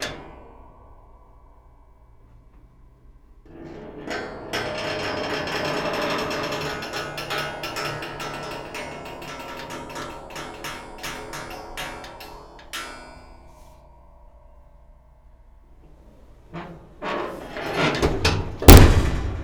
Are people talking?
no